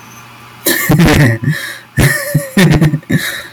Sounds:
Laughter